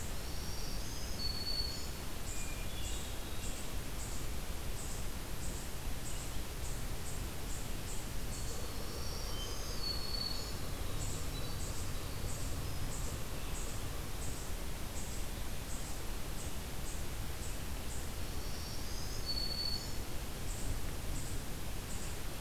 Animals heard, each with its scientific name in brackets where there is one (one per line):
Winter Wren (Troglodytes hiemalis)
Hermit Thrush (Catharus guttatus)
Eastern Chipmunk (Tamias striatus)
Black-throated Green Warbler (Setophaga virens)